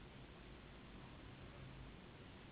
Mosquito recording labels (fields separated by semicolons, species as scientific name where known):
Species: Anopheles gambiae s.s.; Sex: female; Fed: unfed; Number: one; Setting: insect culture